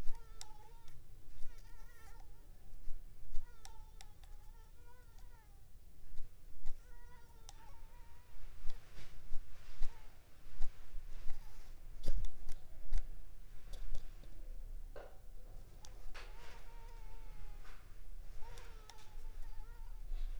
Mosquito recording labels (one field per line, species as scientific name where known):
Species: Culex pipiens complex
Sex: female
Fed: unfed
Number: one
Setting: cup